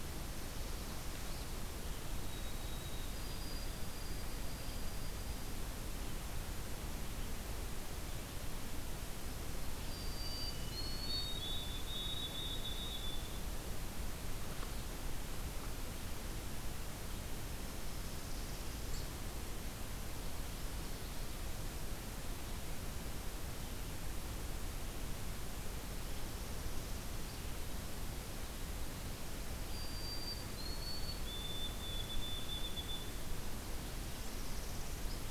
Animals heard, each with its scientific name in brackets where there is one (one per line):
White-throated Sparrow (Zonotrichia albicollis)
Northern Parula (Setophaga americana)